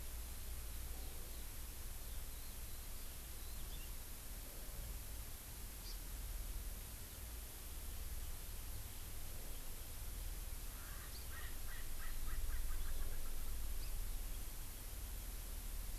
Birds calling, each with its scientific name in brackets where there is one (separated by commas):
Erckel's Francolin (Pternistis erckelii), Eurasian Skylark (Alauda arvensis), Hawaii Amakihi (Chlorodrepanis virens)